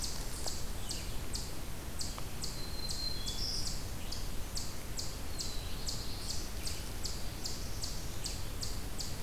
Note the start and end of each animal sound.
[0.00, 9.23] Eastern Chipmunk (Tamias striatus)
[2.39, 3.95] Black-throated Green Warbler (Setophaga virens)
[5.07, 6.66] Black-throated Blue Warbler (Setophaga caerulescens)

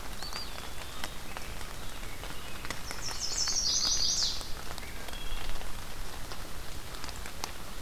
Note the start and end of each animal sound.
[0.00, 1.23] Eastern Wood-Pewee (Contopus virens)
[2.63, 4.60] Chestnut-sided Warbler (Setophaga pensylvanica)
[4.97, 5.50] Wood Thrush (Hylocichla mustelina)

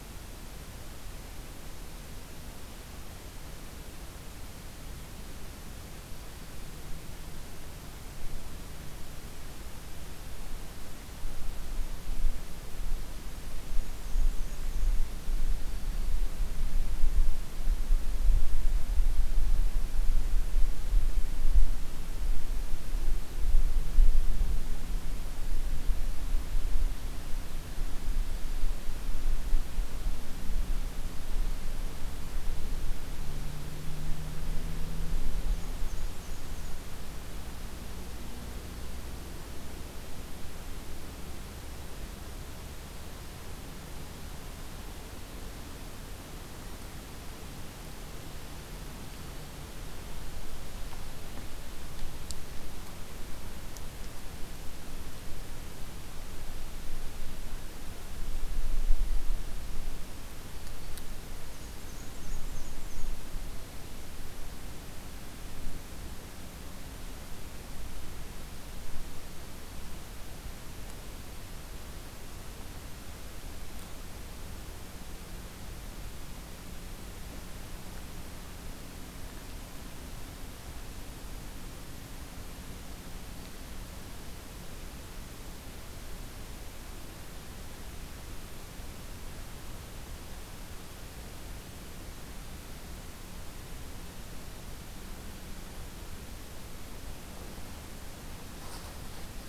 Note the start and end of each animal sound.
[13.62, 14.98] Black-and-white Warbler (Mniotilta varia)
[15.53, 16.24] Black-throated Green Warbler (Setophaga virens)
[35.23, 36.79] Black-and-white Warbler (Mniotilta varia)
[48.91, 49.58] Black-throated Green Warbler (Setophaga virens)
[61.32, 63.11] Black-and-white Warbler (Mniotilta varia)

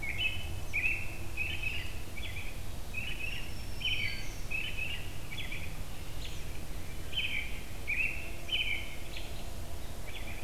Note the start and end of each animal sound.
[0.00, 6.54] American Robin (Turdus migratorius)
[3.10, 4.59] Black-throated Green Warbler (Setophaga virens)
[6.96, 10.44] American Robin (Turdus migratorius)

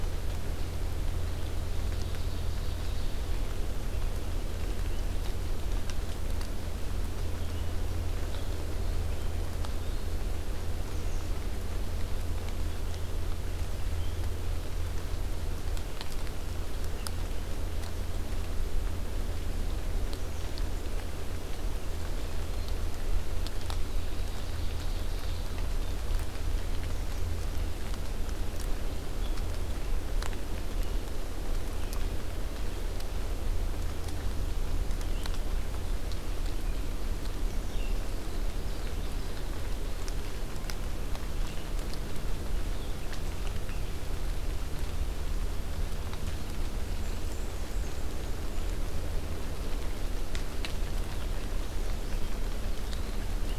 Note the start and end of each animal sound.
[0.00, 53.59] Red-eyed Vireo (Vireo olivaceus)
[1.70, 3.47] Ovenbird (Seiurus aurocapilla)
[10.72, 11.43] Black-and-white Warbler (Mniotilta varia)
[23.77, 25.58] Ovenbird (Seiurus aurocapilla)
[46.95, 48.79] Black-and-white Warbler (Mniotilta varia)

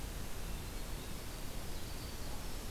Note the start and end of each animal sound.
[0.11, 1.17] Hermit Thrush (Catharus guttatus)
[0.82, 2.70] Winter Wren (Troglodytes hiemalis)

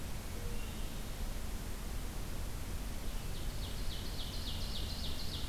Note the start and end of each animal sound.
[0.00, 1.11] Hermit Thrush (Catharus guttatus)
[3.15, 5.49] Ovenbird (Seiurus aurocapilla)

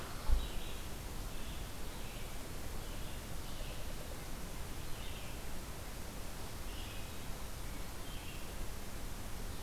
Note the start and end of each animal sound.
[0.00, 9.62] Red-eyed Vireo (Vireo olivaceus)

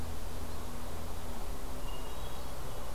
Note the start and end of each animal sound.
[1.68, 2.94] Hermit Thrush (Catharus guttatus)

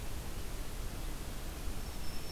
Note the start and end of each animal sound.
[1.57, 2.31] Black-throated Green Warbler (Setophaga virens)

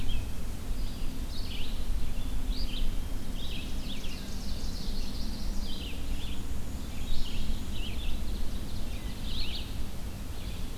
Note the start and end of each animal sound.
[0.00, 10.77] Red-eyed Vireo (Vireo olivaceus)
[3.28, 4.94] Ovenbird (Seiurus aurocapilla)
[5.92, 7.59] Black-and-white Warbler (Mniotilta varia)
[7.54, 9.32] Ovenbird (Seiurus aurocapilla)

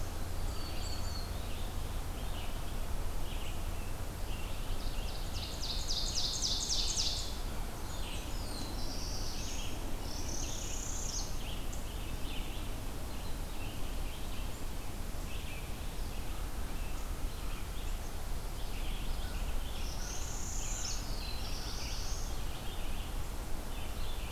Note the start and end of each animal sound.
[0.00, 24.31] Red-eyed Vireo (Vireo olivaceus)
[0.25, 1.84] Black-throated Green Warbler (Setophaga virens)
[0.78, 1.32] Black-capped Chickadee (Poecile atricapillus)
[4.36, 7.46] Ovenbird (Seiurus aurocapilla)
[7.30, 8.69] Blackburnian Warbler (Setophaga fusca)
[8.06, 9.72] Black-throated Blue Warbler (Setophaga caerulescens)
[9.92, 11.55] Northern Parula (Setophaga americana)
[19.61, 21.03] Northern Parula (Setophaga americana)
[20.70, 22.33] Black-throated Blue Warbler (Setophaga caerulescens)

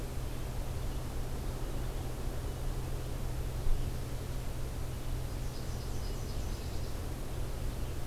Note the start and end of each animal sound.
[5.27, 7.02] Nashville Warbler (Leiothlypis ruficapilla)

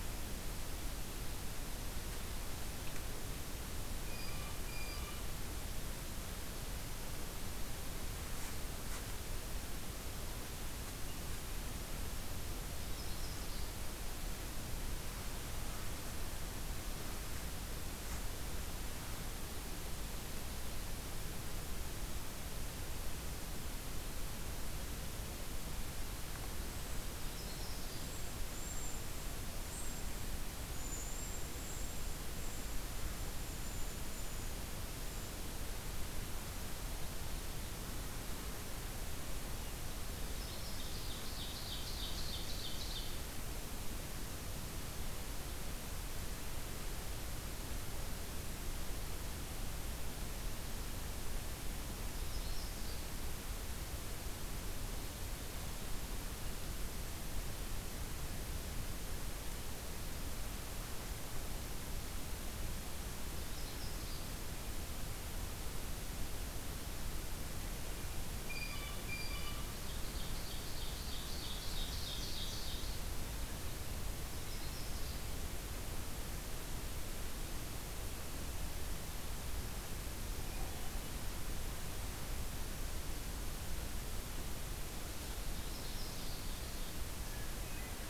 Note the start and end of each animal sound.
[3.88, 5.31] Blue Jay (Cyanocitta cristata)
[12.28, 13.81] Yellow-rumped Warbler (Setophaga coronata)
[26.84, 35.34] Cedar Waxwing (Bombycilla cedrorum)
[27.11, 28.42] Yellow-rumped Warbler (Setophaga coronata)
[40.15, 41.13] Yellow-rumped Warbler (Setophaga coronata)
[40.96, 43.34] Ovenbird (Seiurus aurocapilla)
[51.96, 53.32] Yellow-rumped Warbler (Setophaga coronata)
[63.13, 64.56] Yellow-rumped Warbler (Setophaga coronata)
[68.32, 69.80] Blue Jay (Cyanocitta cristata)
[69.62, 73.13] Ovenbird (Seiurus aurocapilla)
[74.07, 75.65] Yellow-rumped Warbler (Setophaga coronata)
[85.24, 87.14] Ovenbird (Seiurus aurocapilla)
[87.10, 88.09] Hermit Thrush (Catharus guttatus)

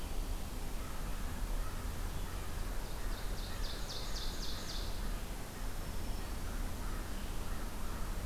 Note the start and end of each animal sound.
[2.62, 5.00] Ovenbird (Seiurus aurocapilla)
[5.60, 6.67] Black-throated Green Warbler (Setophaga virens)

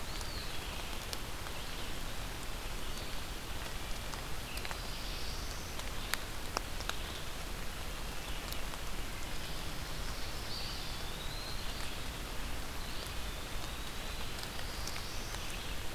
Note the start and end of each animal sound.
[0.00, 0.59] Eastern Wood-Pewee (Contopus virens)
[0.00, 15.95] Red-eyed Vireo (Vireo olivaceus)
[4.23, 5.86] Black-throated Blue Warbler (Setophaga caerulescens)
[10.34, 11.80] Eastern Wood-Pewee (Contopus virens)
[12.77, 14.48] Eastern Wood-Pewee (Contopus virens)
[14.21, 15.48] Black-throated Blue Warbler (Setophaga caerulescens)

